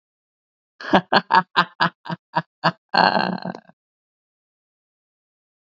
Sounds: Laughter